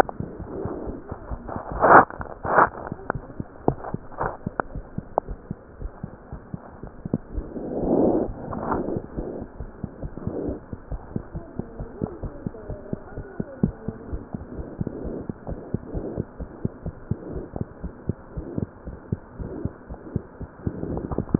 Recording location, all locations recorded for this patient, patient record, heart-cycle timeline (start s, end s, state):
mitral valve (MV)
pulmonary valve (PV)+tricuspid valve (TV)+mitral valve (MV)
#Age: Child
#Sex: Male
#Height: nan
#Weight: nan
#Pregnancy status: False
#Murmur: Absent
#Murmur locations: nan
#Most audible location: nan
#Systolic murmur timing: nan
#Systolic murmur shape: nan
#Systolic murmur grading: nan
#Systolic murmur pitch: nan
#Systolic murmur quality: nan
#Diastolic murmur timing: nan
#Diastolic murmur shape: nan
#Diastolic murmur grading: nan
#Diastolic murmur pitch: nan
#Diastolic murmur quality: nan
#Outcome: Normal
#Campaign: 2015 screening campaign
0.00	10.70	unannotated
10.70	10.78	S2
10.78	10.89	diastole
10.89	11.00	S1
11.00	11.15	systole
11.15	11.24	S2
11.24	11.33	diastole
11.33	11.42	S1
11.42	11.56	systole
11.56	11.63	S2
11.63	11.80	diastole
11.80	11.88	S1
11.88	11.99	systole
11.99	12.09	S2
12.09	12.22	diastole
12.22	12.32	S1
12.32	12.44	systole
12.44	12.54	S2
12.54	12.67	diastole
12.67	12.78	S1
12.78	12.89	systole
12.89	13.00	S2
13.00	13.14	diastole
13.14	13.28	S1
13.28	13.37	systole
13.37	13.48	S2
13.48	13.62	diastole
13.62	13.76	S1
13.76	13.85	systole
13.85	13.96	S2
13.96	14.10	diastole
14.10	14.22	S1
14.22	14.32	systole
14.32	14.42	S2
14.42	14.56	diastole
14.56	14.67	S1
14.67	14.79	systole
14.79	14.90	S2
14.90	15.03	diastole
15.03	15.15	S1
15.15	15.26	systole
15.26	15.34	S2
15.34	15.46	diastole
15.46	15.60	S1
15.60	15.72	systole
15.72	15.82	S2
15.82	15.93	diastole
15.93	16.06	S1
16.06	16.15	systole
16.15	16.26	S2
16.26	16.38	diastole
16.38	16.48	S1
16.48	16.61	systole
16.61	16.72	S2
16.72	16.82	diastole
16.82	16.92	S1
16.92	17.08	systole
17.08	17.18	S2
17.18	17.34	diastole
17.34	17.44	S1
17.44	17.58	systole
17.58	17.68	S2
17.68	17.81	diastole
17.81	17.92	S1
17.92	18.04	systole
18.04	18.16	S2
18.16	18.36	diastole
18.36	18.46	S1
18.46	18.60	systole
18.60	18.70	S2
18.70	18.86	diastole
18.86	21.39	unannotated